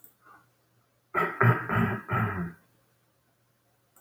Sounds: Throat clearing